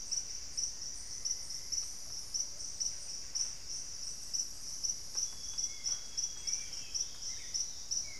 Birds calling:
Plumbeous Pigeon (Patagioenas plumbea), Plumbeous Antbird (Myrmelastes hyperythrus), Solitary Black Cacique (Cacicus solitarius), Olivaceous Woodcreeper (Sittasomus griseicapillus), Amazonian Grosbeak (Cyanoloxia rothschildii), Hauxwell's Thrush (Turdus hauxwelli)

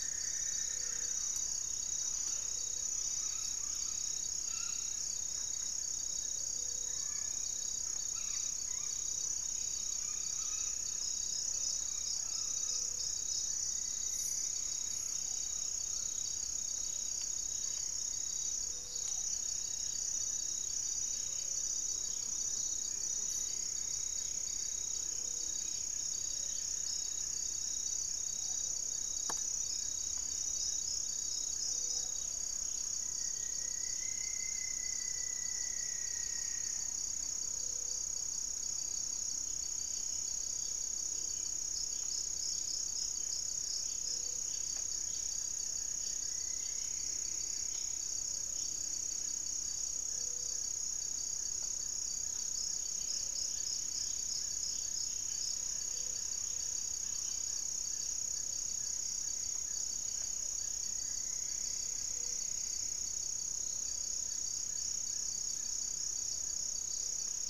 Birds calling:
Cinnamon-throated Woodcreeper (Dendrexetastes rufigula), unidentified bird, Rufous-fronted Antthrush (Formicarius rufifrons), Amazonian Trogon (Trogon ramonianus), Striped Woodcreeper (Xiphorhynchus obsoletus), Hauxwell's Thrush (Turdus hauxwelli), Ruddy Pigeon (Patagioenas subvinacea), Buff-breasted Wren (Cantorchilus leucotis), Gray-fronted Dove (Leptotila rufaxilla), Plumbeous Antbird (Myrmelastes hyperythrus)

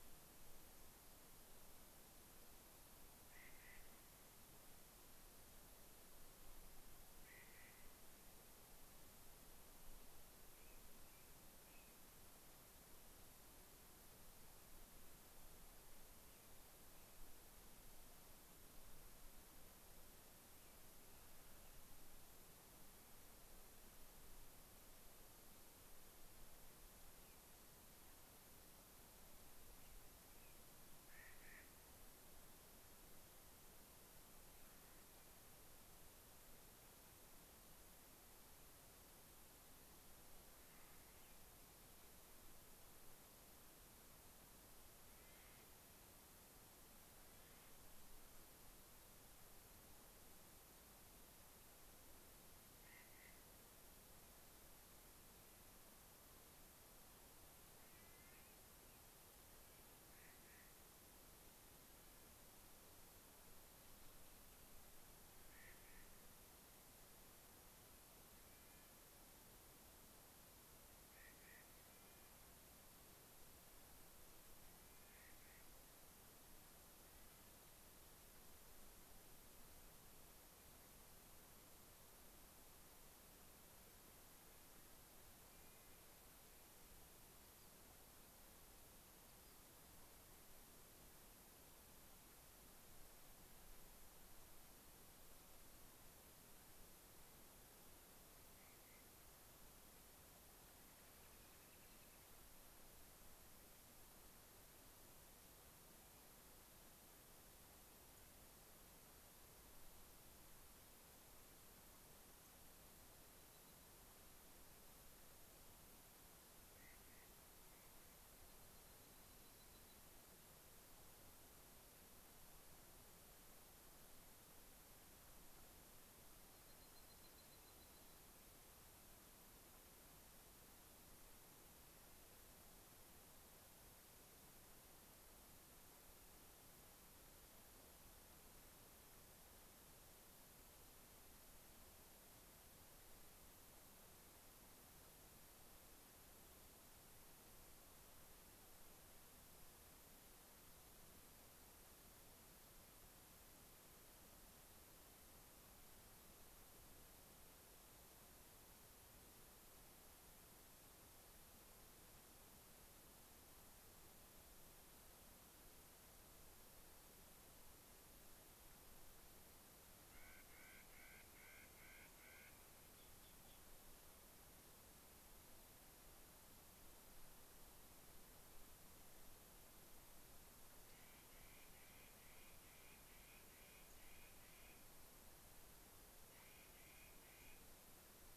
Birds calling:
Rock Wren (Salpinctes obsoletus), Clark's Nutcracker (Nucifraga columbiana), American Robin (Turdus migratorius), unidentified bird, Yellow-rumped Warbler (Setophaga coronata)

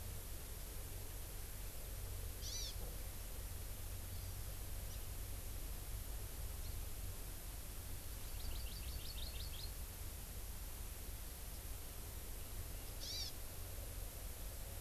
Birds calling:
Hawaii Amakihi (Chlorodrepanis virens)

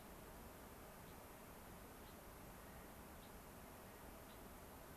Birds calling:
Gray-crowned Rosy-Finch (Leucosticte tephrocotis), Clark's Nutcracker (Nucifraga columbiana)

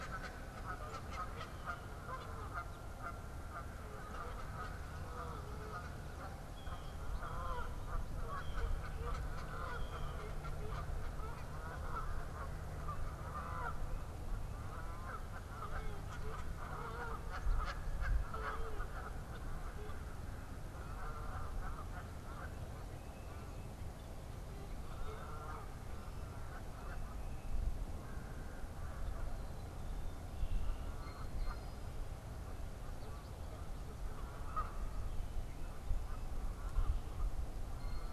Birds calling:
Blue Jay (Cyanocitta cristata), Canada Goose (Branta canadensis)

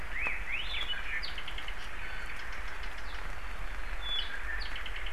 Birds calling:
Hawaii Elepaio (Chasiempis sandwichensis), Apapane (Himatione sanguinea), Iiwi (Drepanis coccinea)

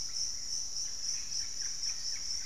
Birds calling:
Russet-backed Oropendola (Psarocolius angustifrons), Hauxwell's Thrush (Turdus hauxwelli)

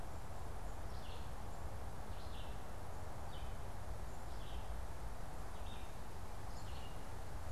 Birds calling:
Black-capped Chickadee (Poecile atricapillus), Red-eyed Vireo (Vireo olivaceus)

